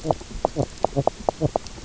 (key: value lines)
label: biophony, knock croak
recorder: SoundTrap 300